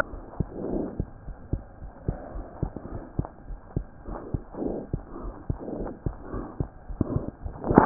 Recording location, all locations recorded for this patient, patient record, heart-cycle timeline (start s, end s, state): aortic valve (AV)
aortic valve (AV)+pulmonary valve (PV)+tricuspid valve (TV)+mitral valve (MV)
#Age: Child
#Sex: Male
#Height: 115.0 cm
#Weight: 19.7 kg
#Pregnancy status: False
#Murmur: Absent
#Murmur locations: nan
#Most audible location: nan
#Systolic murmur timing: nan
#Systolic murmur shape: nan
#Systolic murmur grading: nan
#Systolic murmur pitch: nan
#Systolic murmur quality: nan
#Diastolic murmur timing: nan
#Diastolic murmur shape: nan
#Diastolic murmur grading: nan
#Diastolic murmur pitch: nan
#Diastolic murmur quality: nan
#Outcome: Normal
#Campaign: 2015 screening campaign
0.00	0.10	unannotated
0.10	0.20	S1
0.20	0.36	systole
0.36	0.50	S2
0.50	0.66	diastole
0.66	0.84	S1
0.84	0.96	systole
0.96	1.06	S2
1.06	1.26	diastole
1.26	1.36	S1
1.36	1.52	systole
1.52	1.64	S2
1.64	1.79	diastole
1.79	1.90	S1
1.90	2.04	systole
2.04	2.16	S2
2.16	2.32	diastole
2.32	2.46	S1
2.46	2.58	systole
2.58	2.70	S2
2.70	2.90	diastole
2.90	3.02	S1
3.02	3.16	systole
3.16	3.30	S2
3.30	3.48	diastole
3.48	3.58	S1
3.58	3.74	systole
3.74	3.88	S2
3.88	4.06	diastole
4.06	4.18	S1
4.18	4.28	systole
4.28	4.42	S2
4.42	4.60	diastole
4.60	4.76	S1
4.76	4.92	systole
4.92	5.04	S2
5.04	5.22	diastole
5.22	5.34	S1
5.34	5.48	systole
5.48	5.60	S2
5.60	5.78	diastole
5.78	5.92	S1
5.92	6.04	systole
6.04	6.16	S2
6.16	6.32	diastole
6.32	6.46	S1
6.46	6.58	systole
6.58	6.70	S2
6.70	6.88	diastole
6.88	6.98	S1
6.98	7.10	systole
7.10	7.26	S2
7.26	7.41	diastole
7.41	7.54	S1
7.54	7.86	unannotated